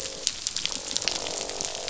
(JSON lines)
{"label": "biophony, croak", "recorder": "SoundTrap 500"}